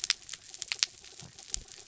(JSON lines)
{"label": "anthrophony, mechanical", "recorder": "SoundTrap 300"}